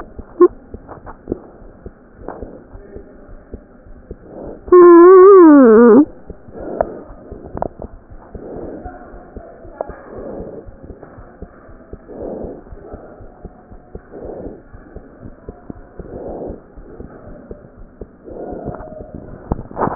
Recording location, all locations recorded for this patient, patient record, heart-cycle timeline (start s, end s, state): aortic valve (AV)
aortic valve (AV)+pulmonary valve (PV)+tricuspid valve (TV)+mitral valve (MV)
#Age: Child
#Sex: Male
#Height: 90.0 cm
#Weight: 13.9 kg
#Pregnancy status: False
#Murmur: Absent
#Murmur locations: nan
#Most audible location: nan
#Systolic murmur timing: nan
#Systolic murmur shape: nan
#Systolic murmur grading: nan
#Systolic murmur pitch: nan
#Systolic murmur quality: nan
#Diastolic murmur timing: nan
#Diastolic murmur shape: nan
#Diastolic murmur grading: nan
#Diastolic murmur pitch: nan
#Diastolic murmur quality: nan
#Outcome: Normal
#Campaign: 2015 screening campaign
0.00	8.91	unannotated
8.91	9.09	diastole
9.09	9.23	S1
9.23	9.34	systole
9.34	9.42	S2
9.42	9.63	diastole
9.63	9.72	S1
9.72	9.86	systole
9.86	9.95	S2
9.95	10.13	diastole
10.13	10.25	S1
10.25	10.37	systole
10.37	10.45	S2
10.45	10.65	diastole
10.65	10.75	S1
10.75	10.85	systole
10.85	10.97	S2
10.97	11.15	diastole
11.15	11.25	S1
11.25	11.37	systole
11.37	11.48	S2
11.48	11.66	diastole
11.66	11.78	S1
11.78	11.89	systole
11.89	11.99	S2
11.99	12.18	diastole
12.18	12.29	S1
12.29	12.41	systole
12.41	12.50	S2
12.50	12.67	diastole
12.67	12.78	S1
12.78	12.90	systole
12.90	12.99	S2
12.99	13.18	diastole
13.18	13.30	S1
13.30	13.41	systole
13.41	13.51	S2
13.51	13.67	diastole
13.67	13.80	S1
13.80	13.90	systole
13.90	14.03	S2
14.03	14.16	diastole
14.16	14.33	S1
14.33	14.43	systole
14.43	14.54	S2
14.54	14.70	diastole
14.70	14.82	S1
14.82	14.93	systole
14.93	15.01	S2
15.01	15.22	diastole
15.22	15.34	S1
15.34	15.45	systole
15.45	15.56	S2
15.56	15.73	diastole
15.73	15.85	S1
15.85	15.96	systole
15.96	16.07	S2
16.07	19.95	unannotated